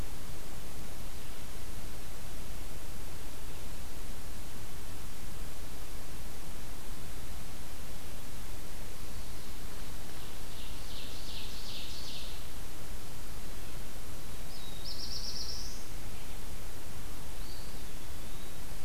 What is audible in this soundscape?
Ovenbird, Black-throated Blue Warbler, Eastern Wood-Pewee